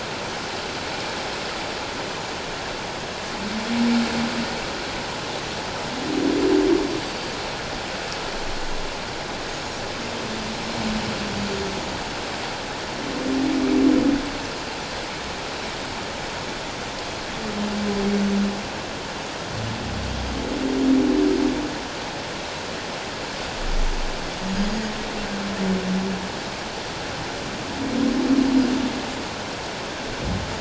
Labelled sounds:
7.1	7.4	Pacific white-sided dolphin, 4.5 to 4.8 kHz
9.5	9.8	Pacific white-sided dolphin, 6.5 to 6.9 kHz

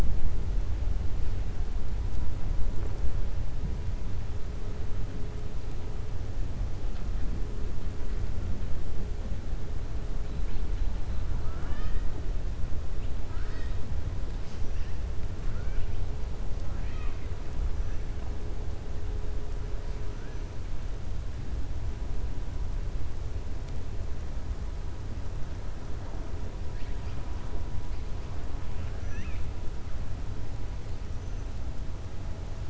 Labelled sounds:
11.3	12.0	killer whale, 0.65 to 5.1 kHz
13.2	13.8	killer whale, 0.99 to 6.4 kHz
15.4	15.9	killer whale, 1.1 to 3.2 kHz
16.6	17.2	killer whale, 0.80 to 3.9 kHz
28.6	29.5	killer whale, 1.3 to 3.7 kHz

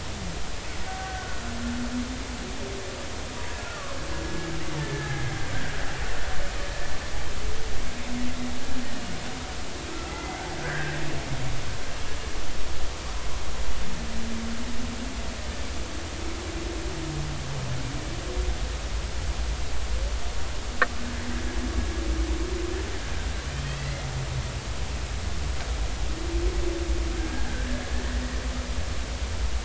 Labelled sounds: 1.0	1.4	killer whale, Bigg's (transient), 1.4 to 1.6 kHz
3.3	3.6	killer whale, Bigg's (transient), 0.93 to 1.0 kHz
4.8	5.2	killer whale, Bigg's (transient), 1.6 to 1.9 kHz
9.9	11.0	killer whale, Bigg's (transient), 1.3 to 2.2 kHz
23.6	24.1	killer whale, Bigg's (transient), 1.8 to 2.8 kHz
27.1	27.5	killer whale, Bigg's (transient), 1.5 to 1.7 kHz

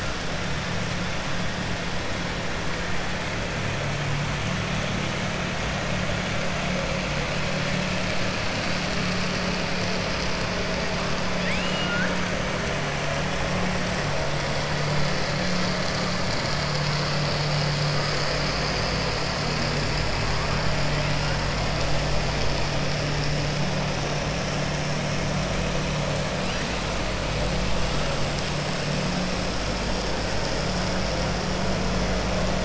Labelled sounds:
11.3	12.1	killer whale, southern resident, 1.4 to 3.7 kHz

